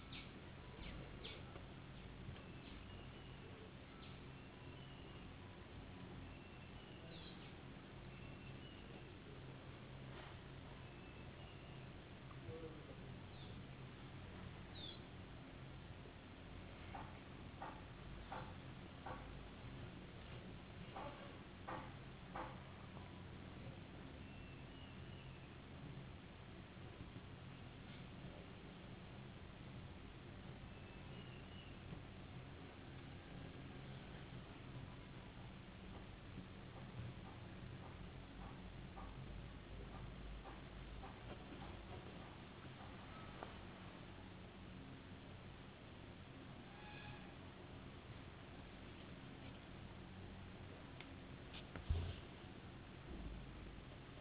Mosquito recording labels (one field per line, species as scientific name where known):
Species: no mosquito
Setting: insect culture